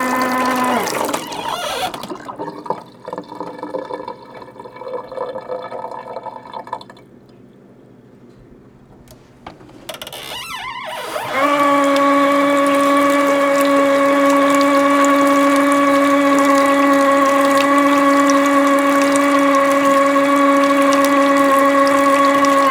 Is only one sound made?
no